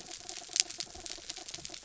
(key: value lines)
label: anthrophony, mechanical
recorder: SoundTrap 300